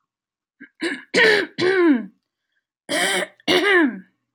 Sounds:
Throat clearing